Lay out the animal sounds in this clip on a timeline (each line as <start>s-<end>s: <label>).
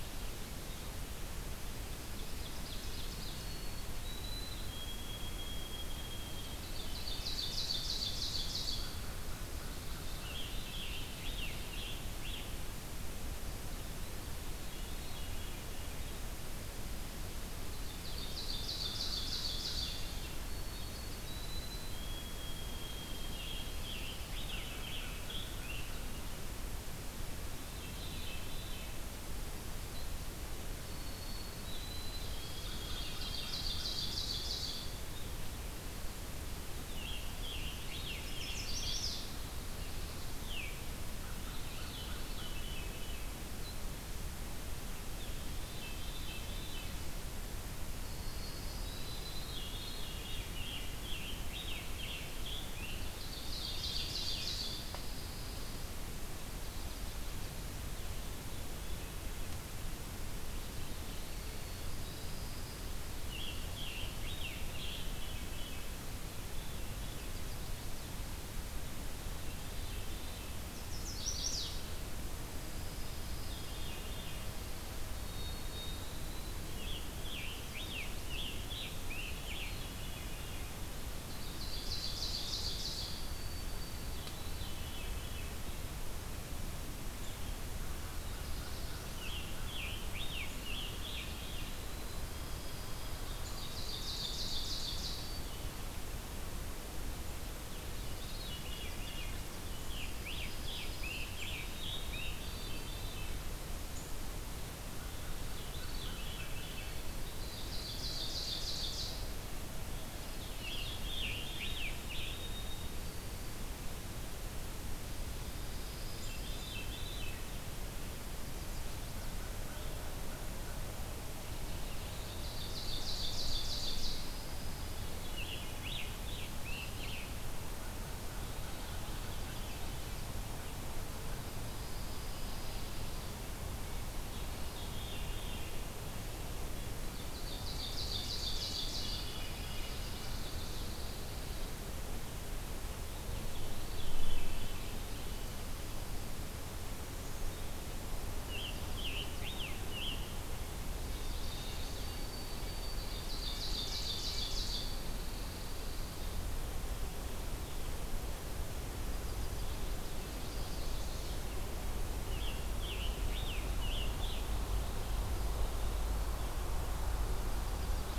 1.8s-3.8s: Ovenbird (Seiurus aurocapilla)
3.2s-6.7s: White-throated Sparrow (Zonotrichia albicollis)
6.3s-9.1s: Ovenbird (Seiurus aurocapilla)
9.8s-12.9s: Scarlet Tanager (Piranga olivacea)
14.6s-16.3s: Veery (Catharus fuscescens)
17.5s-20.6s: Ovenbird (Seiurus aurocapilla)
20.2s-23.6s: White-throated Sparrow (Zonotrichia albicollis)
22.9s-26.3s: Scarlet Tanager (Piranga olivacea)
27.6s-29.0s: Veery (Catharus fuscescens)
30.5s-34.0s: White-throated Sparrow (Zonotrichia albicollis)
32.0s-35.2s: Ovenbird (Seiurus aurocapilla)
32.6s-33.9s: American Crow (Corvus brachyrhynchos)
36.6s-38.6s: Scarlet Tanager (Piranga olivacea)
38.0s-39.3s: Chestnut-sided Warbler (Setophaga pensylvanica)
40.2s-43.5s: Veery (Catharus fuscescens)
45.2s-47.0s: Veery (Catharus fuscescens)
47.9s-50.9s: White-throated Sparrow (Zonotrichia albicollis)
49.4s-51.1s: Veery (Catharus fuscescens)
50.6s-53.5s: Scarlet Tanager (Piranga olivacea)
52.8s-55.1s: Ovenbird (Seiurus aurocapilla)
54.5s-56.0s: Pine Warbler (Setophaga pinus)
61.4s-62.3s: Black-capped Chickadee (Poecile atricapillus)
61.7s-63.0s: Pine Warbler (Setophaga pinus)
63.1s-65.1s: Scarlet Tanager (Piranga olivacea)
65.0s-67.4s: Veery (Catharus fuscescens)
69.3s-70.6s: Veery (Catharus fuscescens)
70.6s-71.8s: Chestnut-sided Warbler (Setophaga pensylvanica)
72.4s-74.1s: Pine Warbler (Setophaga pinus)
72.7s-74.6s: Veery (Catharus fuscescens)
75.0s-76.7s: White-throated Sparrow (Zonotrichia albicollis)
76.5s-80.0s: Scarlet Tanager (Piranga olivacea)
79.2s-80.8s: Veery (Catharus fuscescens)
81.4s-83.7s: Ovenbird (Seiurus aurocapilla)
82.1s-84.5s: White-throated Sparrow (Zonotrichia albicollis)
84.1s-85.8s: Veery (Catharus fuscescens)
88.1s-89.5s: Chestnut-sided Warbler (Setophaga pensylvanica)
89.0s-92.1s: Scarlet Tanager (Piranga olivacea)
91.5s-93.7s: White-throated Sparrow (Zonotrichia albicollis)
93.2s-95.5s: Ovenbird (Seiurus aurocapilla)
97.8s-99.6s: Veery (Catharus fuscescens)
99.6s-102.6s: Scarlet Tanager (Piranga olivacea)
101.4s-103.6s: White-throated Sparrow (Zonotrichia albicollis)
102.3s-103.5s: Veery (Catharus fuscescens)
105.1s-107.1s: Veery (Catharus fuscescens)
107.1s-109.6s: Ovenbird (Seiurus aurocapilla)
110.3s-112.2s: Scarlet Tanager (Piranga olivacea)
112.2s-113.8s: White-throated Sparrow (Zonotrichia albicollis)
115.1s-116.8s: Pine Warbler (Setophaga pinus)
116.0s-117.4s: Veery (Catharus fuscescens)
122.1s-124.6s: Ovenbird (Seiurus aurocapilla)
123.8s-125.2s: Pine Warbler (Setophaga pinus)
125.0s-127.1s: Scarlet Tanager (Piranga olivacea)
134.6s-135.9s: Veery (Catharus fuscescens)
137.0s-139.5s: Ovenbird (Seiurus aurocapilla)
139.0s-140.4s: Veery (Catharus fuscescens)
140.3s-141.9s: Pine Warbler (Setophaga pinus)
143.0s-145.2s: Veery (Catharus fuscescens)
148.3s-150.6s: Scarlet Tanager (Piranga olivacea)
150.9s-152.2s: Chestnut-sided Warbler (Setophaga pensylvanica)
151.0s-153.6s: White-throated Sparrow (Zonotrichia albicollis)
152.9s-155.0s: Ovenbird (Seiurus aurocapilla)
154.8s-156.1s: Pine Warbler (Setophaga pinus)
160.3s-161.5s: Chestnut-sided Warbler (Setophaga pensylvanica)
162.1s-164.8s: Scarlet Tanager (Piranga olivacea)